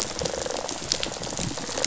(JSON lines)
{"label": "biophony, rattle response", "recorder": "SoundTrap 500"}